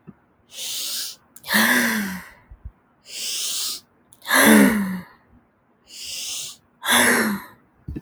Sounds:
Sigh